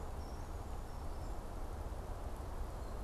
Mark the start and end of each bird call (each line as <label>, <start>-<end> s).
Brown Creeper (Certhia americana), 0.0-1.7 s